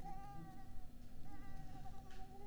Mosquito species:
Mansonia africanus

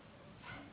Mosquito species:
Anopheles gambiae s.s.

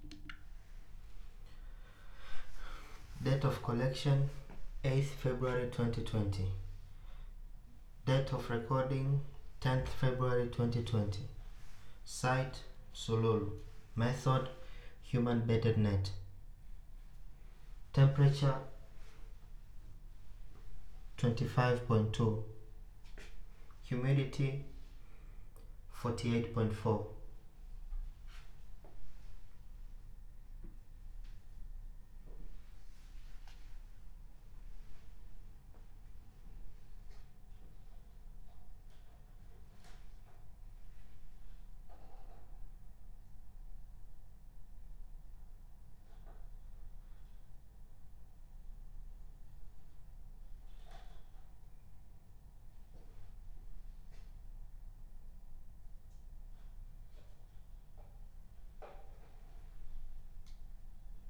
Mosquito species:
no mosquito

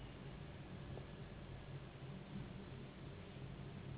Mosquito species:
Anopheles gambiae s.s.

